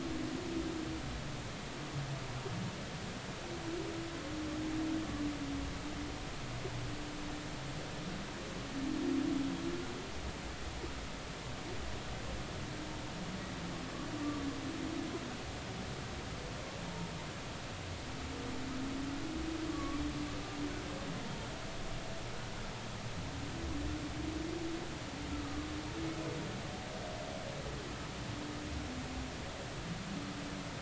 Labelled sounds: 19.7	20.0	humpback whale, 1.1 to 1.2 kHz

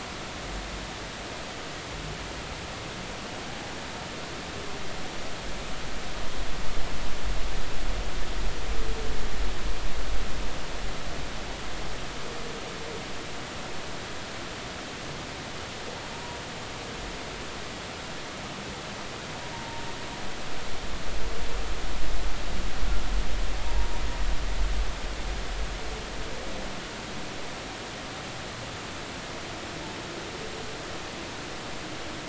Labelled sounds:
16.1	16.4	humpback whale, 0.90 to 0.99 kHz
19.5	19.8	humpback whale, 0.86 to 0.96 kHz

